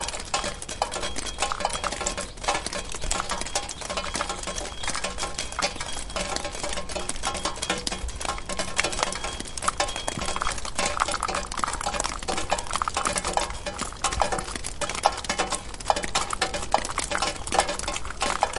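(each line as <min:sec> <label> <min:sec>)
0:00.0 Water drips rhythmically onto a metal surface, creating a steady, metallic resonance with each drop and subtle splashing sounds. 0:18.6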